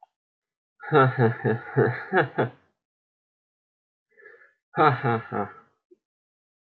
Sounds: Laughter